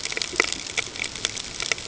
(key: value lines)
label: ambient
recorder: HydroMoth